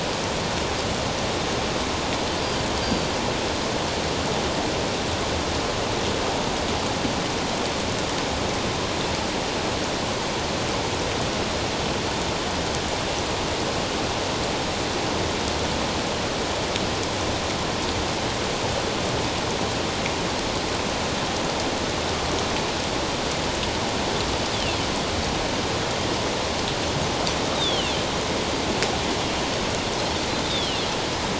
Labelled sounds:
2.8	3.1	Pacific white-sided dolphin, 4.5 to 4.8 kHz
27.6	27.9	Pacific white-sided dolphin, 2.6 to 3.9 kHz
30.5	30.8	Pacific white-sided dolphin, 2.6 to 3.8 kHz

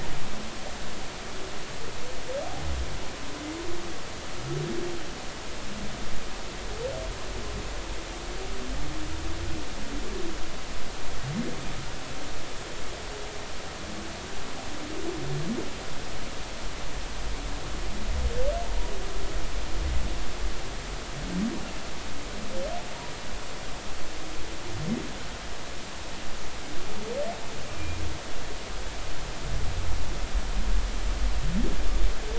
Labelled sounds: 18.6	18.9	humpback whale, 0.90 to 0.99 kHz
27.8	28.0	humpback whale, 2.3 to 2.5 kHz

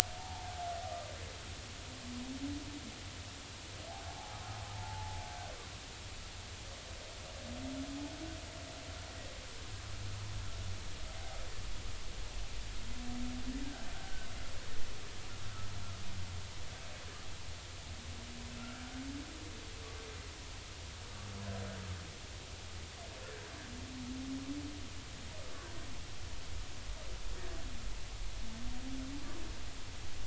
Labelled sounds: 0.2	0.6	humpback whale, 0.80 to 0.99 kHz
0.8	1.1	humpback whale, 1.2 to 1.3 kHz
4.1	4.4	humpback whale, 0.80 to 0.93 kHz
4.7	5.5	humpback whale, 0.80 to 1.6 kHz
13.9	14.3	humpback whale, 1.4 to 1.6 kHz
18.6	18.8	humpback whale, 1.3 to 1.4 kHz

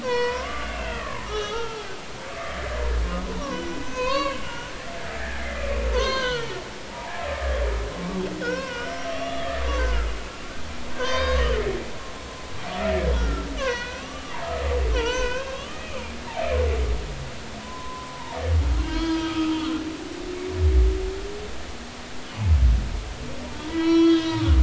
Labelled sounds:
0.0	1.9	humpback whale, 0.80 to 5.8 kHz
2.4	2.7	humpback whale, 1.7 to 1.9 kHz
3.5	4.7	humpback whale, 0.96 to 4.6 kHz
5.9	7.5	humpback whale, 0.80 to 6.5 kHz
8.4	10.1	humpback whale, 0.93 to 3.5 kHz
10.9	11.4	humpback whale, 0.96 to 6.3 kHz
13.1	15.9	humpback whale, 0.86 to 5.9 kHz
17.6	19.5	humpback whale, 0.86 to 5.0 kHz
23.6	24.5	humpback whale, 0.90 to 4.0 kHz

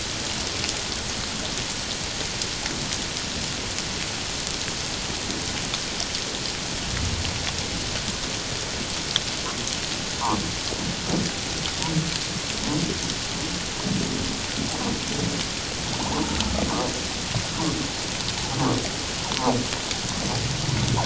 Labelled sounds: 16.0	16.4	humpback whale, 0.78 to 1.1 kHz

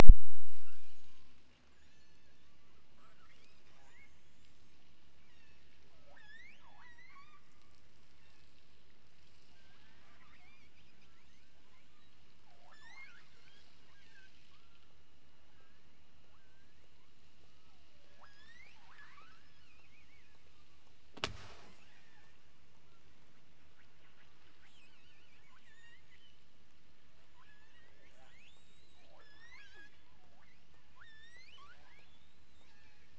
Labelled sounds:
0.2	1.3	killer whale, offshore, 0.27 to 6.9 kHz
1.6	2.6	killer whale, offshore, 0.98 to 7.3 kHz
2.9	4.9	killer whale, offshore, 0.55 to 7.8 kHz
5.1	7.4	killer whale, offshore, 0.41 to 8.0 kHz
8.2	8.6	killer whale, offshore, 0.66 to 4.0 kHz
10.1	14.7	killer whale, offshore, 0.36 to 8.0 kHz
15.5	16.9	killer whale, offshore, 1.1 to 2.7 kHz
18.1	20.5	killer whale, offshore, 0.39 to 8.0 kHz
21.7	22.5	killer whale, offshore, 0.98 to 3.7 kHz
24.6	26.5	killer whale, offshore, 0.73 to 8.0 kHz
27.2	33.1	killer whale, offshore, 0.32 to 8.0 kHz

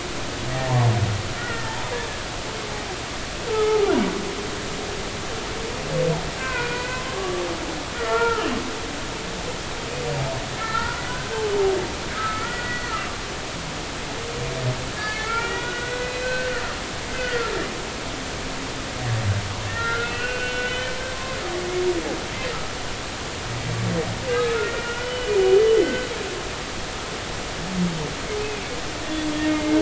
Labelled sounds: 1.4	1.8	humpback whale, 1.3 to 2.0 kHz
3.5	3.9	humpback whale, 0.80 to 1.4 kHz
6.4	7.4	humpback whale, 0.90 to 2.6 kHz
7.9	8.5	humpback whale, 0.86 to 2.0 kHz
10.6	11.5	humpback whale, 0.86 to 1.9 kHz
12.1	13.0	humpback whale, 1.2 to 2.0 kHz
15.0	17.5	humpback whale, 1.3 to 4.1 kHz
19.7	20.9	humpback whale, 1.3 to 3.1 kHz
24.3	25.3	humpback whale, 1.2 to 3.0 kHz
25.8	26.1	humpback whale, 1.5 to 2.1 kHz
29.4	29.7	humpback whale, 2.1 to 2.2 kHz

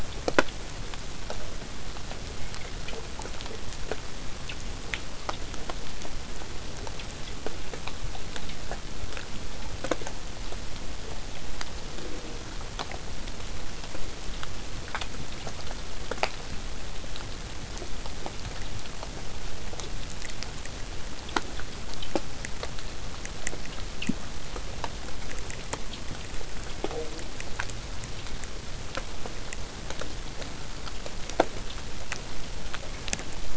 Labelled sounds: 26.8	27.3	killer whale, southern resident, 0.15 to 0.85 kHz

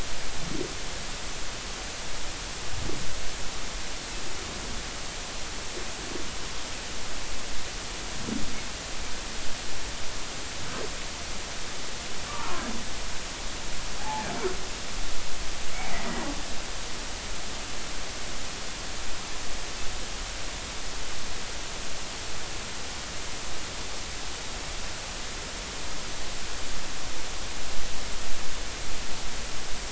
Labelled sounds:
14.0	14.3	humpback whale, 0.80 to 0.93 kHz
16.1	16.3	humpback whale, 1.9 to 2.0 kHz

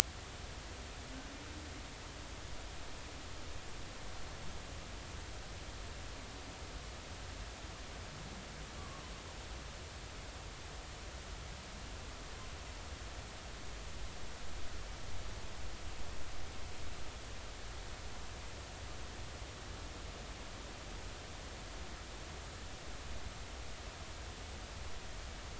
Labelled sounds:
8.8	9.0	humpback whale, 0.99 to 1.2 kHz

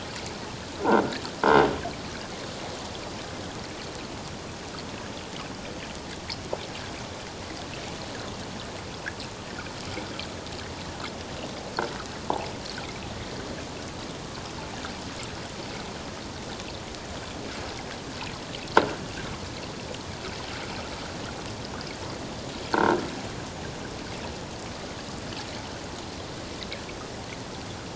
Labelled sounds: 22.7	23.0	croaking sound likely from a nearby submerged object, 1.3 to 1.7 kHz

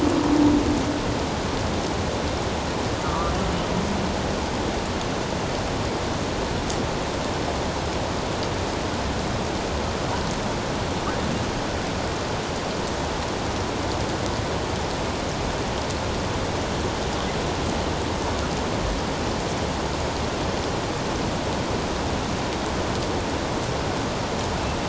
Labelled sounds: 3.0	3.3	humpback whale, 0.94 to 1.4 kHz

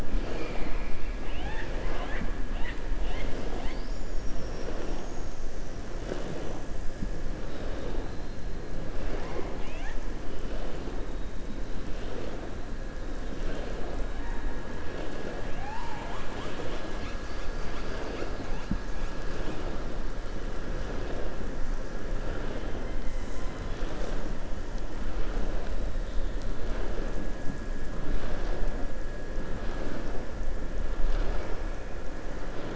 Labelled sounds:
8.9	10.0	killer whale, southern resident, 0.39 to 5.1 kHz

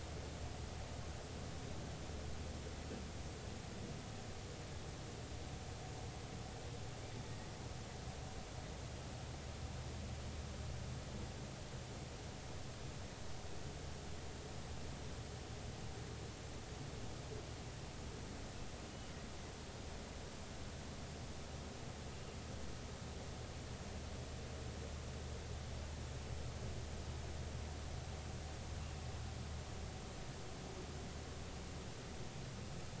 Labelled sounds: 7.3	7.5	killer whale, northern resident, 1.8 to 2.0 kHz

